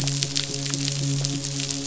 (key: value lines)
label: biophony, midshipman
recorder: SoundTrap 500

label: biophony
recorder: SoundTrap 500